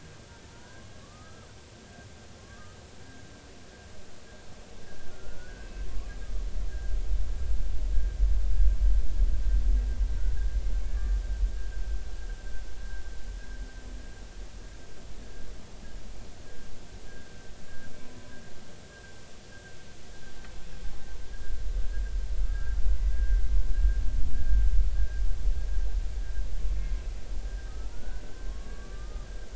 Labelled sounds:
0.4	1.5	humpback whale, 0.86 to 1.7 kHz
2.4	2.8	humpback whale, 1.0 to 1.3 kHz
5.1	6.1	humpback whale, 1.0 to 1.7 kHz
6.7	6.9	humpback whale, 1.5 to 1.7 kHz
10.8	11.2	humpback whale, 1.1 to 1.9 kHz
17.1	17.3	humpback whale, 1.5 to 1.7 kHz
18.0	18.3	humpback whale, 0.96 to 1.1 kHz
18.9	19.1	humpback whale, 1.5 to 1.7 kHz
22.5	23.6	humpback whale, 1.3 to 2.1 kHz
27.7	29.3	humpback whale, 1.0 to 1.6 kHz

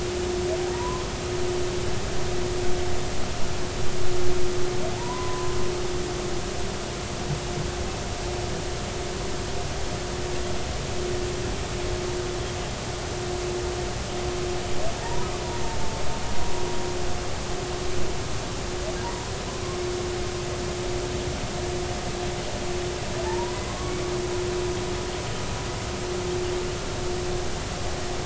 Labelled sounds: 0.7	1.0	humpback whale, 0.90 to 1.1 kHz
5.0	5.6	humpback whale, 0.80 to 1.1 kHz
15.0	15.3	humpback whale, 0.83 to 1.1 kHz
19.0	19.3	humpback whale, 0.90 to 1.1 kHz
23.2	24.0	humpback whale, 0.83 to 1.2 kHz

